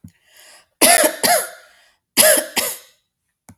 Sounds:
Cough